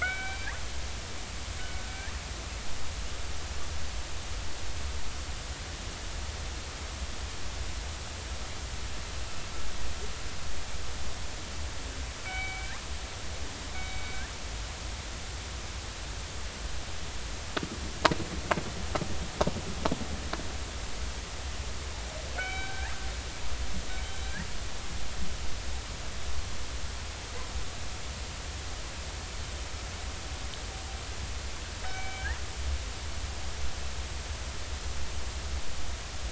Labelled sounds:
0.0	0.5	killer whale, northern resident, 1.3 to 3.2 kHz
12.2	12.7	killer whale, northern resident, 1.4 to 3.8 kHz
13.7	14.2	killer whale, northern resident, 2.2 to 2.3 kHz
22.3	23.0	killer whale, northern resident, 1.4 to 3.9 kHz
31.8	32.3	killer whale, northern resident, 1.4 to 2.4 kHz

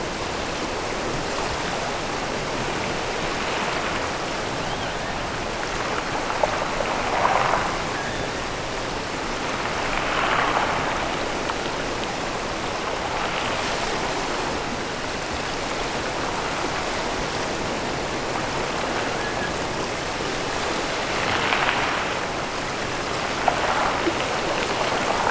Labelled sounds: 4.5	5.0	killer whale, offshore, 2.4 to 3.5 kHz
7.6	8.3	killer whale, offshore, 1.4 to 3.0 kHz

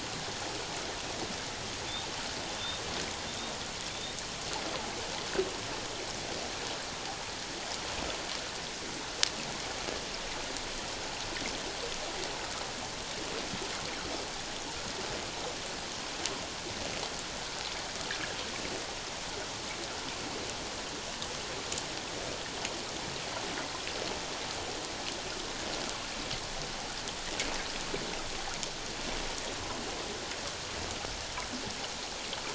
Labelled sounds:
2.5	2.8	humpback whale, 3.4 to 3.7 kHz

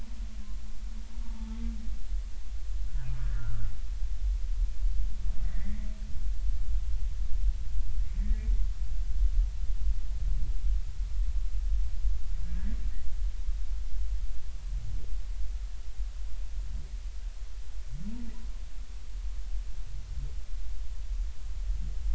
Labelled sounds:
1.2	1.6	humpback whale, 0.83 to 0.96 kHz
2.9	3.7	humpback whale, 1.1 to 1.8 kHz
5.4	5.9	humpback whale, 1.7 to 2.1 kHz
8.2	8.5	humpback whale, 1.7 to 2.1 kHz
12.4	12.8	humpback whale, 1.5 to 2.0 kHz

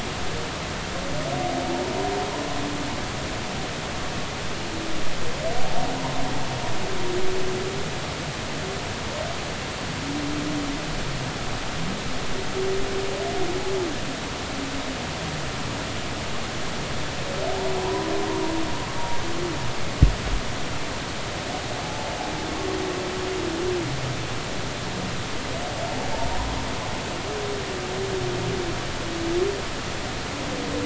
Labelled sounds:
17.8	18.1	humpback whale, 0.86 to 1.1 kHz

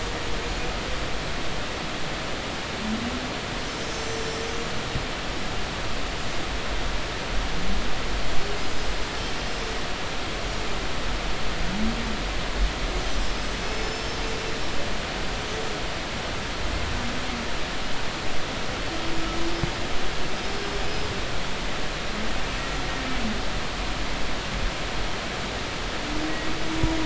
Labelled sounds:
0.4	0.6	humpback whale, 6.7 to 6.9 kHz
3.7	4.5	humpback whale, 5.2 to 7.7 kHz
8.6	9.0	humpback whale, 5.0 to 7.7 kHz
13.1	13.4	humpback whale, 5.2 to 5.5 kHz
13.6	14.3	humpback whale, 4.9 to 6.3 kHz
20.3	21.1	humpback whale, 4.9 to 5.4 kHz

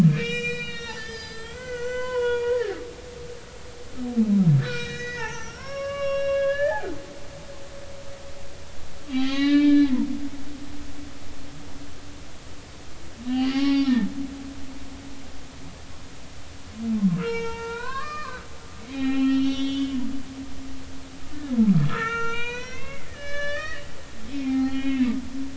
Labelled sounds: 0.0	2.8	humpback whale, 0.90 to 8.0 kHz
4.6	6.8	humpback whale, 0.80 to 6.4 kHz
9.1	10.0	humpback whale, 0.80 to 5.0 kHz
13.3	14.1	humpback whale, 0.80 to 5.5 kHz
17.2	20.0	humpback whale, 0.80 to 5.8 kHz
21.3	23.8	humpback whale, 0.86 to 6.4 kHz
24.2	25.1	humpback whale, 0.80 to 3.4 kHz

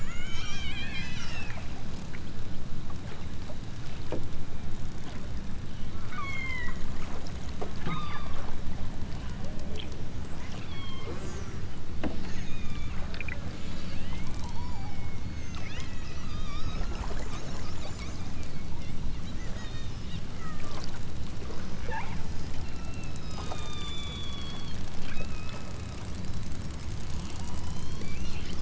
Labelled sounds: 0.0	1.7	killer whale, southern Alaska resident, 0.88 to 8.0 kHz
6.0	6.8	killer whale, southern Alaska resident, 0.74 to 8.0 kHz
7.8	8.4	killer whale, southern Alaska resident, 0.69 to 5.5 kHz
10.3	12.9	killer whale, southern Alaska resident, 0.55 to 8.0 kHz
13.4	14.1	killer whale, southern Alaska resident, 1.4 to 8.0 kHz
14.4	16.9	killer whale, southern Alaska resident, 0.55 to 7.5 kHz
19.2	20.9	killer whale, southern Alaska resident, 0.64 to 7.7 kHz
21.4	25.9	killer whale, southern Alaska resident, 0.41 to 8.0 kHz
27.3	28.1	killer whale, southern Alaska resident, 0.78 to 7.2 kHz

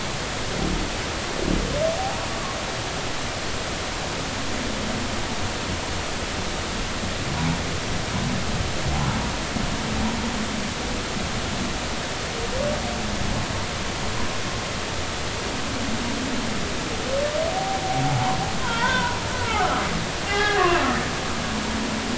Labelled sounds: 18.1	19.2	humpback whale, 0.80 to 1.6 kHz
19.5	20.6	humpback whale, 0.80 to 2.1 kHz

